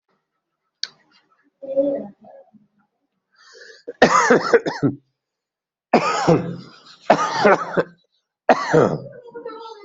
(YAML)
expert_labels:
- quality: good
  cough_type: dry
  dyspnea: false
  wheezing: false
  stridor: false
  choking: false
  congestion: false
  nothing: true
  diagnosis: upper respiratory tract infection
  severity: mild
age: 41
gender: male
respiratory_condition: false
fever_muscle_pain: false
status: COVID-19